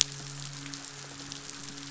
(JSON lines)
{"label": "biophony, midshipman", "recorder": "SoundTrap 500"}